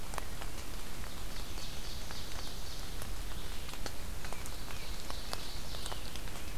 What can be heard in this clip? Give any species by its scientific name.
Seiurus aurocapilla, Baeolophus bicolor